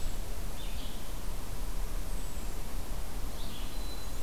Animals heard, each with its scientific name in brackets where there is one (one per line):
Black-capped Chickadee (Poecile atricapillus)
unidentified call
Red-eyed Vireo (Vireo olivaceus)